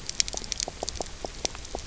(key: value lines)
label: biophony, knock croak
recorder: SoundTrap 300